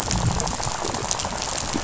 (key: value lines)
label: biophony, rattle
recorder: SoundTrap 500